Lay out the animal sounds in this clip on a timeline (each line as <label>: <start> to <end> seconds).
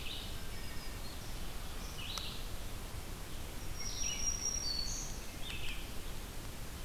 Red-eyed Vireo (Vireo olivaceus): 0.0 to 6.8 seconds
Black-throated Green Warbler (Setophaga virens): 0.2 to 1.6 seconds
Wood Thrush (Hylocichla mustelina): 0.4 to 1.2 seconds
Black-throated Green Warbler (Setophaga virens): 3.6 to 5.3 seconds